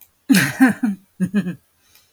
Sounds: Laughter